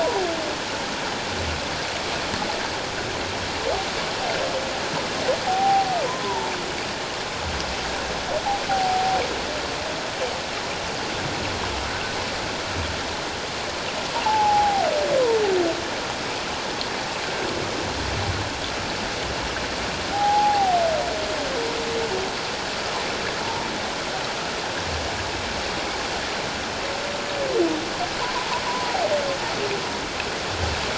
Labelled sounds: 5.4	6.5	humpback whale, 0.78 to 1.1 kHz
8.7	9.2	humpback whale, 0.78 to 0.84 kHz
14.2	14.9	humpback whale, 0.78 to 0.94 kHz
17.2	17.5	humpback whale, 1.4 to 1.7 kHz
20.1	20.8	humpback whale, 0.78 to 0.91 kHz
28.7	29.0	humpback whale, 0.94 to 1.1 kHz

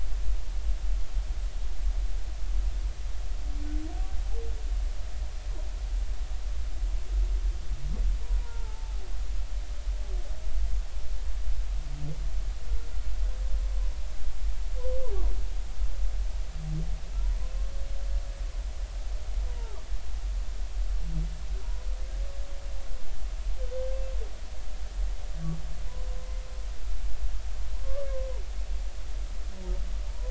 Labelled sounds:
8.4	9.0	humpback whale, 0.83 to 1.4 kHz
17.4	17.7	humpback whale, 0.99 to 1.1 kHz
27.8	28.1	humpback whale, 1.0 to 1.2 kHz
30.1	30.3	humpback whale, 0.86 to 1.1 kHz

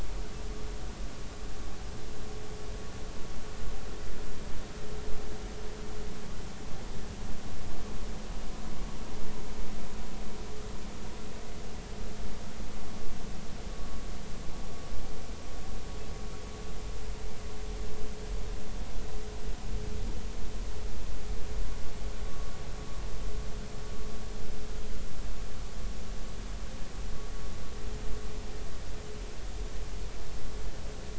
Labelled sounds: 22.3	22.5	vessel noise, 1.1 to 1.2 kHz

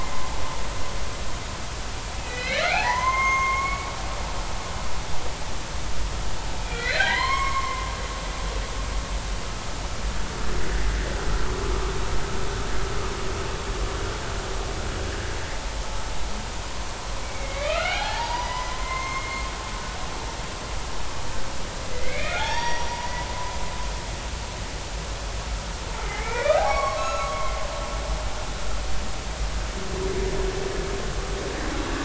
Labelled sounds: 2.2	3.9	humpback whale, 0.80 to 6.4 kHz
6.6	7.9	humpback whale, 0.90 to 5.5 kHz
17.2	19.5	humpback whale, 0.80 to 4.9 kHz
21.9	22.9	humpback whale, 0.80 to 5.8 kHz
26.0	27.6	humpback whale, 0.80 to 4.5 kHz

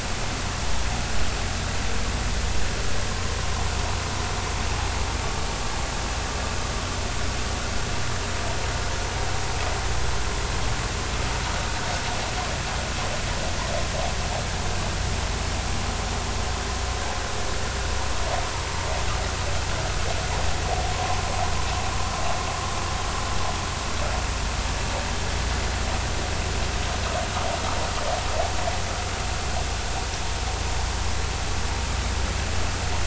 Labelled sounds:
20.9	21.2	vessel noise, 0.96 to 1.1 kHz

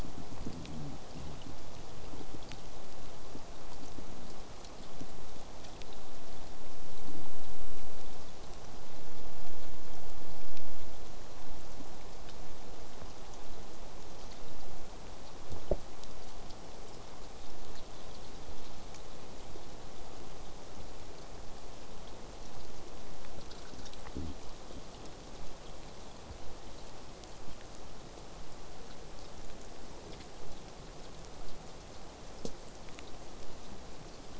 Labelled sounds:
29.4	34.3	vessel noise, 0 to 8.0 kHz

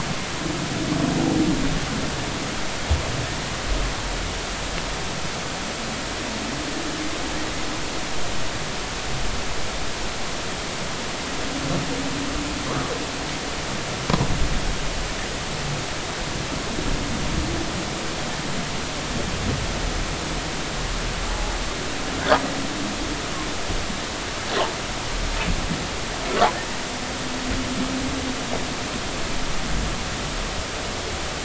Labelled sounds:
21.3	21.5	humpback whale, 0.80 to 0.93 kHz

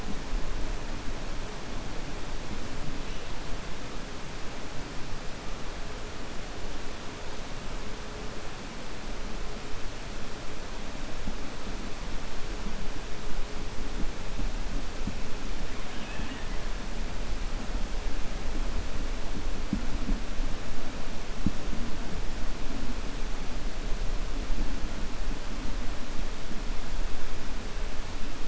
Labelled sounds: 15.8	16.5	killer whale, 1.0 to 3.8 kHz

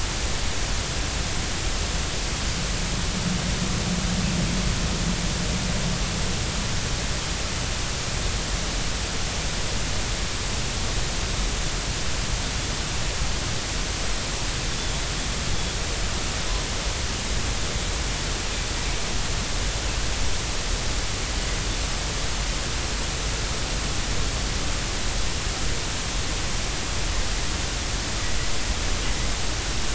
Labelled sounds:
14.7	15.0	Pacific white-sided dolphin, 3.4 to 3.6 kHz

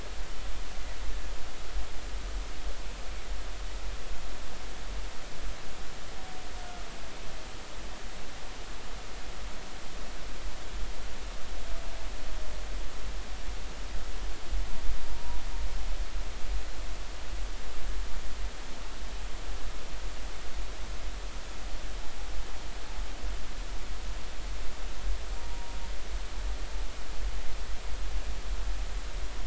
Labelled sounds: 15.1	15.4	humpback whale, 0.90 to 0.99 kHz
25.4	25.8	humpback whale, 0.90 to 0.99 kHz

